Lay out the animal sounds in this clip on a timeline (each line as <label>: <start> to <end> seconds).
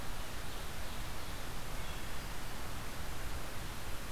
Ovenbird (Seiurus aurocapilla): 0.0 to 1.8 seconds
Wood Thrush (Hylocichla mustelina): 1.5 to 2.4 seconds